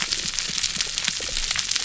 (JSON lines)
{"label": "biophony", "recorder": "SoundTrap 300"}